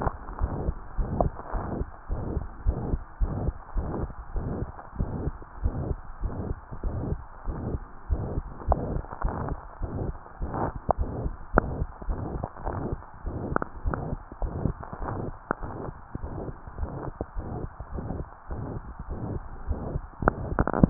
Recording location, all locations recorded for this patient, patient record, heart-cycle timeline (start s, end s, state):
tricuspid valve (TV)
pulmonary valve (PV)+tricuspid valve (TV)+mitral valve (MV)
#Age: Child
#Sex: Female
#Height: 112.0 cm
#Weight: 21.2 kg
#Pregnancy status: False
#Murmur: Present
#Murmur locations: mitral valve (MV)+pulmonary valve (PV)+tricuspid valve (TV)
#Most audible location: pulmonary valve (PV)
#Systolic murmur timing: Holosystolic
#Systolic murmur shape: Diamond
#Systolic murmur grading: I/VI
#Systolic murmur pitch: Medium
#Systolic murmur quality: Harsh
#Diastolic murmur timing: nan
#Diastolic murmur shape: nan
#Diastolic murmur grading: nan
#Diastolic murmur pitch: nan
#Diastolic murmur quality: nan
#Outcome: Abnormal
#Campaign: 2015 screening campaign
0.14	0.37	diastole
0.37	0.51	S1
0.51	0.64	systole
0.64	0.76	S2
0.76	0.93	diastole
0.93	1.07	S1
1.07	1.18	systole
1.18	1.34	S2
1.34	1.49	diastole
1.49	1.62	S1
1.62	1.72	systole
1.72	1.86	S2
1.86	2.04	diastole
2.04	2.20	S1
2.20	2.32	systole
2.32	2.44	S2
2.44	2.64	diastole
2.64	2.77	S1
2.77	2.86	systole
2.86	3.00	S2
3.00	3.20	diastole
3.20	3.34	S1
3.34	3.42	systole
3.42	3.56	S2
3.56	3.73	diastole
3.73	3.88	S1
3.88	3.96	systole
3.96	4.10	S2
4.10	4.34	diastole
4.34	4.48	S1
4.48	4.58	systole
4.58	4.70	S2
4.70	4.98	diastole
4.98	5.10	S1
5.10	5.22	systole
5.22	5.36	S2
5.36	5.59	diastole
5.59	5.77	S1
5.77	5.85	systole
5.85	5.98	S2
5.98	6.18	diastole
6.18	6.32	S1
6.32	6.40	systole
6.40	6.56	S2
6.56	6.84	diastole
6.84	6.96	S1
6.96	7.06	systole
7.06	7.20	S2
7.20	7.48	diastole
7.48	7.60	S1
7.60	7.68	systole
7.68	7.82	S2
7.82	8.12	diastole
8.12	8.24	S1
8.24	8.34	systole
8.34	8.44	S2
8.44	8.66	diastole
8.66	8.78	S1
8.78	8.86	systole
8.86	9.02	S2
9.02	9.22	diastole
9.22	9.35	S1
9.35	9.46	systole
9.46	9.58	S2
9.58	9.76	diastole
9.76	9.92	S1
9.92	10.02	systole
10.02	10.16	S2
10.16	10.33	diastole
10.33	10.50	S1
10.50	10.58	systole
10.58	10.72	S2
10.72	10.95	diastole
10.95	11.12	S1
11.12	11.20	systole
11.20	11.32	S2
11.32	11.50	diastole
11.50	11.64	S1
11.64	11.76	systole
11.76	11.88	S2
11.88	12.05	diastole
12.05	12.19	S1
12.19	12.39	systole
12.39	12.50	S2
12.50	12.66	diastole
12.66	12.80	S1
12.80	12.90	systole
12.90	13.00	S2
13.00	13.26	diastole
13.26	13.40	S1
13.40	13.50	systole
13.50	13.60	S2
13.60	13.80	diastole
13.80	13.93	S1
13.93	14.06	systole
14.06	14.20	S2
14.20	14.39	diastole
14.39	14.52	S1
14.52	14.64	systole
14.64	14.76	S2
14.76	14.98	diastole
14.98	15.10	S1
15.10	15.24	systole
15.24	15.32	S2
15.32	15.58	diastole
15.58	15.71	S1
15.71	15.86	systole
15.86	15.94	S2
15.94	16.19	diastole
16.19	16.31	S1
16.31	16.41	systole
16.41	16.54	S2
16.54	16.80	diastole
16.80	16.93	S1
16.93	17.03	systole
17.03	17.14	S2
17.14	17.33	diastole
17.33	17.47	S1
17.47	17.60	systole
17.60	17.70	S2
17.70	17.93	diastole
17.93	18.06	S1
18.06	18.16	systole
18.16	18.26	S2
18.26	18.52	diastole
18.52	18.64	S1
18.64	18.72	systole
18.72	18.82	S2
18.82	19.10	diastole
19.10	19.20	S1
19.20	19.28	systole
19.28	19.42	S2
19.42	19.68	diastole
19.68	19.82	S1
19.82	19.94	systole